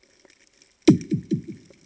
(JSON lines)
{"label": "anthrophony, bomb", "recorder": "HydroMoth"}